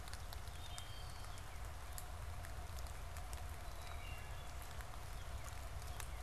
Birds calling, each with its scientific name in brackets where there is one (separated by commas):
Northern Cardinal (Cardinalis cardinalis), Wood Thrush (Hylocichla mustelina)